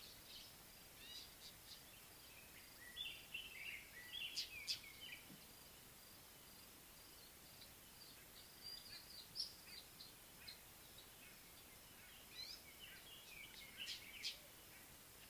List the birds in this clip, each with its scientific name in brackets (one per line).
Gray-backed Camaroptera (Camaroptera brevicaudata)
Northern Puffback (Dryoscopus gambensis)
Little Bee-eater (Merops pusillus)
White-browed Robin-Chat (Cossypha heuglini)